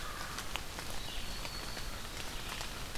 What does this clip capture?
American Crow, Red-eyed Vireo, Black-throated Green Warbler